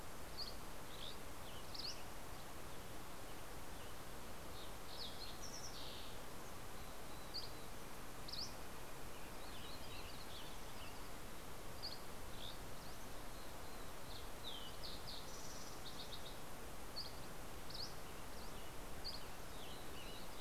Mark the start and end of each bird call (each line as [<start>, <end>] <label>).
[0.00, 2.50] Dusky Flycatcher (Empidonax oberholseri)
[1.20, 5.00] Western Tanager (Piranga ludoviciana)
[4.10, 6.50] Fox Sparrow (Passerella iliaca)
[7.20, 9.00] Dusky Flycatcher (Empidonax oberholseri)
[8.60, 11.50] Western Tanager (Piranga ludoviciana)
[9.10, 11.10] MacGillivray's Warbler (Geothlypis tolmiei)
[11.50, 12.90] Dusky Flycatcher (Empidonax oberholseri)
[13.70, 16.90] Fox Sparrow (Passerella iliaca)
[16.50, 19.70] Dusky Flycatcher (Empidonax oberholseri)
[17.40, 20.40] Western Tanager (Piranga ludoviciana)